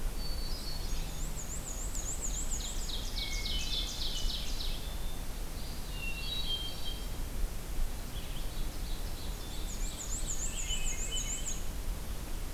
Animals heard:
Black-and-white Warbler (Mniotilta varia)
Eastern Wood-Pewee (Contopus virens)
Ovenbird (Seiurus aurocapilla)
Red-eyed Vireo (Vireo olivaceus)
Hermit Thrush (Catharus guttatus)

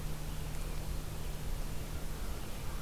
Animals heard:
American Crow (Corvus brachyrhynchos)
Red-eyed Vireo (Vireo olivaceus)

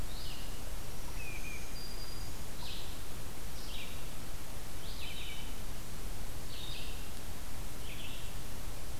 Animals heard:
Red-eyed Vireo (Vireo olivaceus)
unidentified call
Black-throated Green Warbler (Setophaga virens)

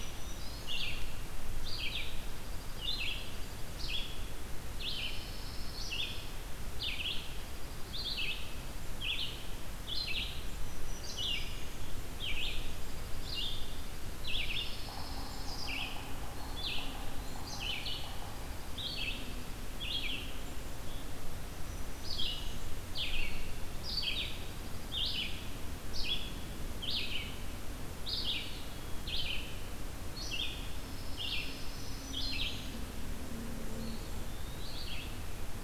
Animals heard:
Yellow-bellied Sapsucker (Sphyrapicus varius)
Pine Warbler (Setophaga pinus)
Black-throated Green Warbler (Setophaga virens)
Dark-eyed Junco (Junco hyemalis)
Red-eyed Vireo (Vireo olivaceus)
Eastern Wood-Pewee (Contopus virens)
Blackburnian Warbler (Setophaga fusca)

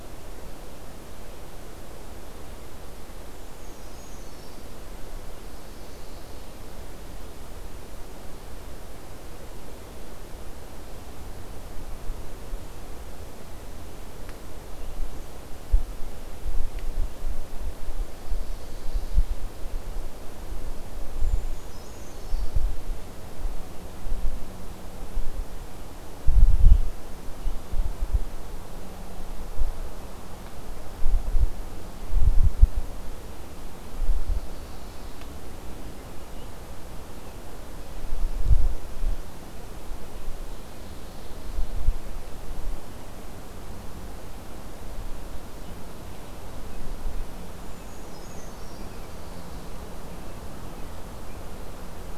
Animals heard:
Brown Creeper (Certhia americana)

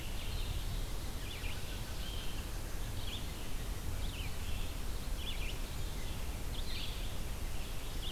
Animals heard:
Red-eyed Vireo (Vireo olivaceus)
Blue-headed Vireo (Vireo solitarius)

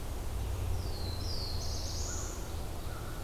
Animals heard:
Black-throated Blue Warbler (Setophaga caerulescens)
American Crow (Corvus brachyrhynchos)

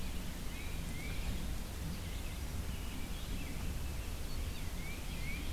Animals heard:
Tufted Titmouse (Baeolophus bicolor)
American Robin (Turdus migratorius)

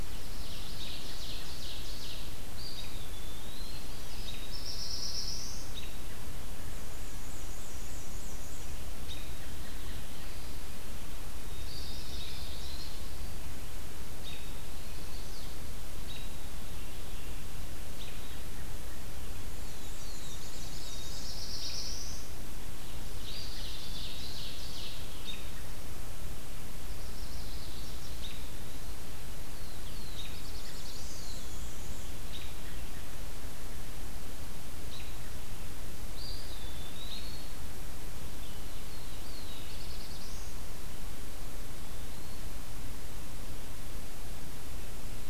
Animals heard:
Ovenbird (Seiurus aurocapilla)
Black-and-white Warbler (Mniotilta varia)
Black-throated Blue Warbler (Setophaga caerulescens)
Chestnut-sided Warbler (Setophaga pensylvanica)
Eastern Wood-Pewee (Contopus virens)
American Robin (Turdus migratorius)
White-throated Sparrow (Zonotrichia albicollis)

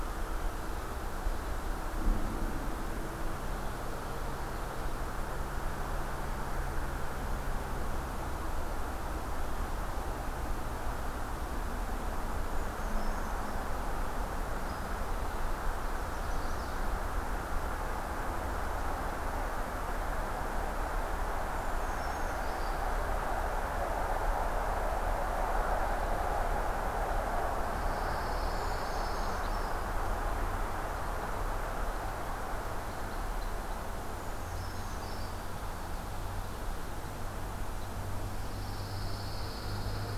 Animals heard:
Brown Creeper (Certhia americana)
Chestnut-sided Warbler (Setophaga pensylvanica)
Pine Warbler (Setophaga pinus)

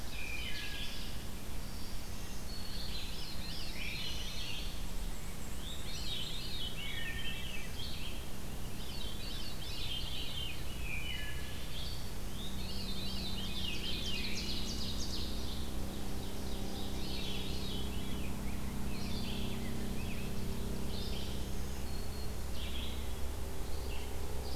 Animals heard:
Ovenbird (Seiurus aurocapilla)
Black-and-white Warbler (Mniotilta varia)
Rose-breasted Grosbeak (Pheucticus ludovicianus)
Wood Thrush (Hylocichla mustelina)
Red-eyed Vireo (Vireo olivaceus)
Black-throated Green Warbler (Setophaga virens)
Veery (Catharus fuscescens)

